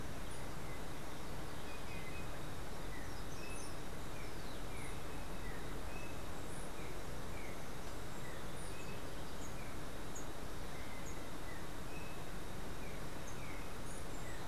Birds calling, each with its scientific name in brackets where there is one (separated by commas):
Green Jay (Cyanocorax yncas), Yellow-backed Oriole (Icterus chrysater)